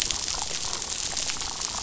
{"label": "biophony, damselfish", "recorder": "SoundTrap 500"}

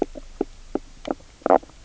{"label": "biophony, knock croak", "recorder": "SoundTrap 300"}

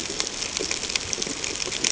{"label": "ambient", "recorder": "HydroMoth"}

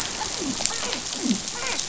{"label": "biophony, dolphin", "recorder": "SoundTrap 500"}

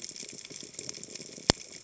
{"label": "biophony", "recorder": "HydroMoth"}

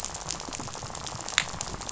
{"label": "biophony, rattle", "recorder": "SoundTrap 500"}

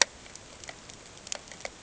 {"label": "ambient", "recorder": "HydroMoth"}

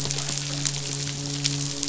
{"label": "biophony, midshipman", "recorder": "SoundTrap 500"}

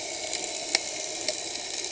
{"label": "anthrophony, boat engine", "recorder": "HydroMoth"}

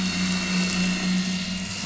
{"label": "anthrophony, boat engine", "recorder": "SoundTrap 500"}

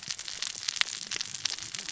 {"label": "biophony, cascading saw", "recorder": "SoundTrap 600 or HydroMoth"}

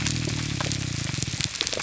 {"label": "biophony, grouper groan", "recorder": "SoundTrap 300"}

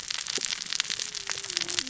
{"label": "biophony, cascading saw", "recorder": "SoundTrap 600 or HydroMoth"}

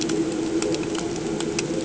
{"label": "anthrophony, boat engine", "recorder": "HydroMoth"}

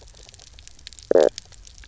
{"label": "biophony, knock croak", "recorder": "SoundTrap 300"}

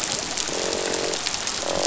{"label": "biophony, croak", "recorder": "SoundTrap 500"}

